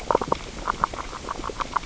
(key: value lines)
label: biophony, grazing
recorder: SoundTrap 600 or HydroMoth